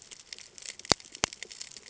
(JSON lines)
{"label": "ambient", "recorder": "HydroMoth"}